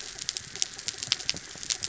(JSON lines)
{"label": "anthrophony, mechanical", "recorder": "SoundTrap 300"}